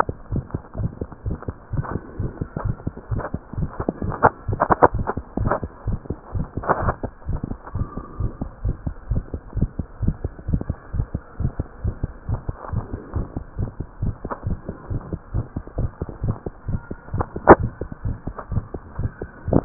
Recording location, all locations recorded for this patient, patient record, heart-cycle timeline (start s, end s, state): mitral valve (MV)
aortic valve (AV)+pulmonary valve (PV)+tricuspid valve (TV)+mitral valve (MV)
#Age: Child
#Sex: Female
#Height: 97.0 cm
#Weight: 13.5 kg
#Pregnancy status: False
#Murmur: Present
#Murmur locations: mitral valve (MV)+tricuspid valve (TV)
#Most audible location: tricuspid valve (TV)
#Systolic murmur timing: Early-systolic
#Systolic murmur shape: Plateau
#Systolic murmur grading: I/VI
#Systolic murmur pitch: Low
#Systolic murmur quality: Blowing
#Diastolic murmur timing: nan
#Diastolic murmur shape: nan
#Diastolic murmur grading: nan
#Diastolic murmur pitch: nan
#Diastolic murmur quality: nan
#Outcome: Abnormal
#Campaign: 2015 screening campaign
0.00	8.50	unannotated
8.50	8.64	diastole
8.64	8.76	S1
8.76	8.86	systole
8.86	8.94	S2
8.94	9.09	diastole
9.09	9.24	S1
9.24	9.32	systole
9.32	9.40	S2
9.40	9.55	diastole
9.55	9.70	S1
9.70	9.78	systole
9.78	9.86	S2
9.86	10.00	diastole
10.00	10.16	S1
10.16	10.23	systole
10.23	10.32	S2
10.32	10.48	diastole
10.48	10.62	S1
10.62	10.68	systole
10.68	10.76	S2
10.76	10.94	diastole
10.94	11.06	S1
11.06	11.13	systole
11.13	11.22	S2
11.22	11.39	diastole
11.39	11.52	S1
11.52	11.58	systole
11.58	11.64	S2
11.64	11.83	diastole
11.83	11.93	S1
11.93	12.01	systole
12.01	12.08	S2
12.08	12.27	diastole
12.27	12.40	S1
12.40	12.46	systole
12.46	12.53	S2
12.53	12.71	diastole
12.71	12.83	S1
12.83	12.91	systole
12.91	12.98	S2
12.98	13.13	diastole
13.13	13.23	S1
13.23	13.34	systole
13.34	13.42	S2
13.42	13.58	diastole
13.58	13.70	S1
13.70	13.78	systole
13.78	13.84	S2
13.84	14.02	diastole
14.02	14.14	S1
14.14	14.22	systole
14.22	14.28	S2
14.28	14.46	diastole
14.46	14.57	S1
14.57	14.66	systole
14.66	14.74	S2
14.74	14.89	diastole
14.89	15.00	S1
15.00	15.10	systole
15.10	15.20	S2
15.20	15.33	diastole
15.33	15.46	S1
15.46	15.54	systole
15.54	15.64	S2
15.64	15.78	diastole
15.78	15.91	S1
15.91	15.99	systole
15.99	16.06	S2
16.06	16.22	diastole
16.22	16.35	S1
16.35	16.44	systole
16.44	16.52	S2
16.52	16.68	diastole
16.68	16.78	S1
16.78	19.65	unannotated